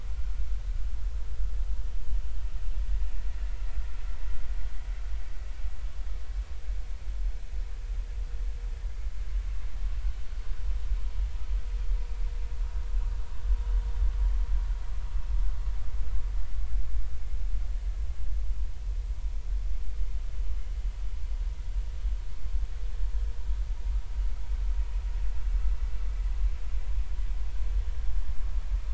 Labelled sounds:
0.1	0.4	vessel noise, 1.3 to 1.6 kHz

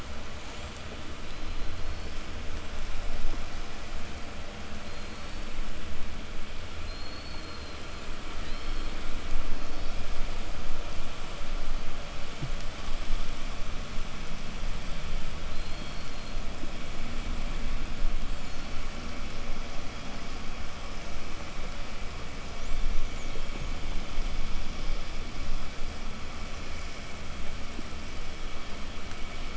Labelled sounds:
0.1	2.5	killer whale, southern resident, 3.3 to 8.0 kHz
4.6	5.7	killer whale, southern resident, 3.6 to 5.1 kHz
6.7	10.2	killer whale, southern resident, 2.5 to 6.0 kHz
15.2	16.6	killer whale, southern resident, 2.6 to 4.9 kHz
18.0	19.0	killer whale, southern resident, 3.6 to 8.0 kHz
22.2	26.5	killer whale, southern resident, 4.8 to 8.0 kHz

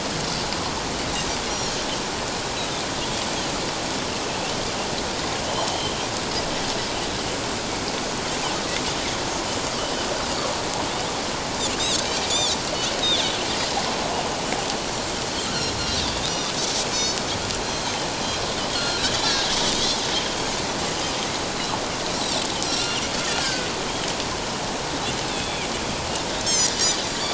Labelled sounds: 9.8	10.1	Pacific white-sided dolphin, 2.8 to 3.1 kHz
11.8	12.0	Pacific white-sided dolphin, 3.2 to 4.0 kHz
16.0	16.2	Pacific white-sided dolphin, 3.4 to 4.0 kHz
16.9	17.2	Pacific white-sided dolphin, 4.4 to 6.9 kHz
17.7	18.0	Pacific white-sided dolphin, 6.2 to 6.5 kHz
18.7	19.5	Pacific white-sided dolphin, 1.3 to 4.4 kHz
22.6	23.0	Pacific white-sided dolphin, 1.3 to 5.9 kHz
23.4	23.7	Pacific white-sided dolphin, 1.4 to 1.7 kHz
25.3	25.7	Pacific white-sided dolphin, 3.1 to 3.8 kHz
26.5	27.0	Pacific white-sided dolphin, 4.6 to 7.6 kHz

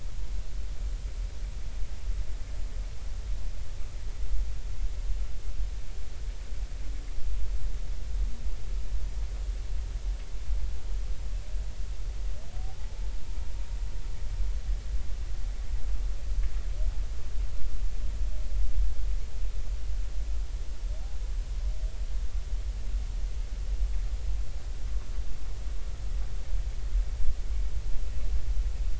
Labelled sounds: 12.6	12.9	humpback whale, 0.80 to 0.90 kHz

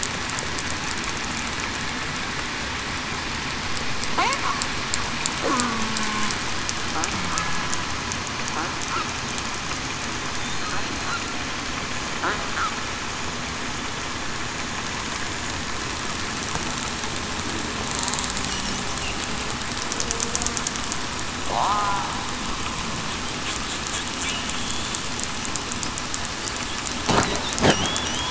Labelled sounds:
21.5	22.1	killer whale, southern resident, 0.73 to 1.1 kHz
27.7	28.0	killer whale, southern resident, 2.8 to 3.5 kHz

